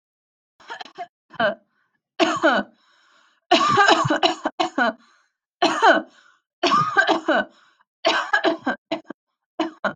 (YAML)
expert_labels:
- quality: good
  cough_type: dry
  dyspnea: false
  wheezing: false
  stridor: false
  choking: false
  congestion: false
  nothing: true
  diagnosis: upper respiratory tract infection
  severity: severe
age: 28
gender: female
respiratory_condition: true
fever_muscle_pain: true
status: symptomatic